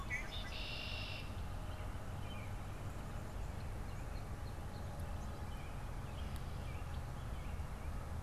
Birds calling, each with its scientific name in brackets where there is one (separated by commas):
American Robin (Turdus migratorius), Red-winged Blackbird (Agelaius phoeniceus)